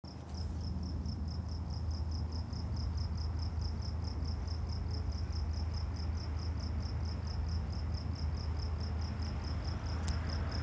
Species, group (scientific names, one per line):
Gryllodes sigillatus
Orthoptera